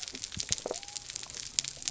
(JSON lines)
{"label": "biophony", "recorder": "SoundTrap 300"}